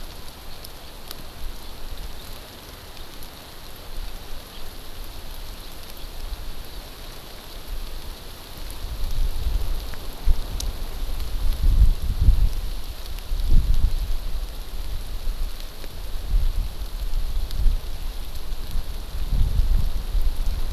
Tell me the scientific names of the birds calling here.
Chlorodrepanis virens